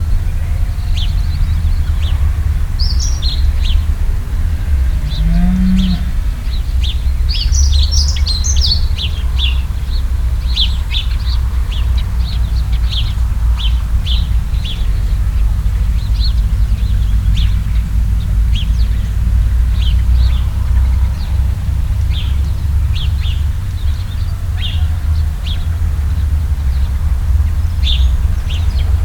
are the cars beeping their horns?
no